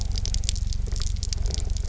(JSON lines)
{"label": "anthrophony, boat engine", "recorder": "SoundTrap 300"}